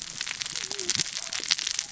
{"label": "biophony, cascading saw", "recorder": "SoundTrap 600 or HydroMoth"}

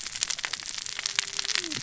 {"label": "biophony, cascading saw", "recorder": "SoundTrap 600 or HydroMoth"}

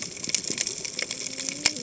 {"label": "biophony, cascading saw", "recorder": "HydroMoth"}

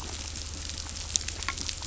{"label": "anthrophony, boat engine", "recorder": "SoundTrap 500"}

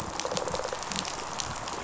{"label": "biophony, rattle response", "recorder": "SoundTrap 500"}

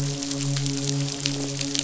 {"label": "biophony, midshipman", "recorder": "SoundTrap 500"}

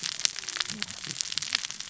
{"label": "biophony, cascading saw", "recorder": "SoundTrap 600 or HydroMoth"}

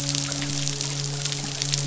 {"label": "biophony, midshipman", "recorder": "SoundTrap 500"}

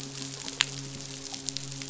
{"label": "biophony, midshipman", "recorder": "SoundTrap 500"}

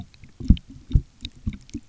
{"label": "geophony, waves", "recorder": "SoundTrap 300"}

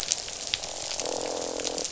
{"label": "biophony, croak", "recorder": "SoundTrap 500"}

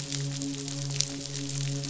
{"label": "biophony, midshipman", "recorder": "SoundTrap 500"}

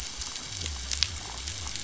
{"label": "biophony", "recorder": "SoundTrap 500"}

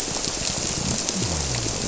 {"label": "biophony", "recorder": "SoundTrap 300"}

